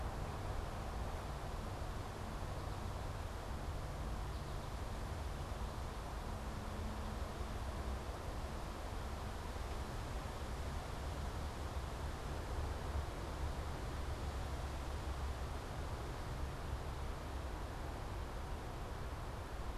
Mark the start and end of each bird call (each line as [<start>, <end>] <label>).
[2.37, 4.97] American Goldfinch (Spinus tristis)